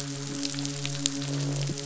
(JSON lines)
{"label": "biophony, midshipman", "recorder": "SoundTrap 500"}
{"label": "biophony, croak", "recorder": "SoundTrap 500"}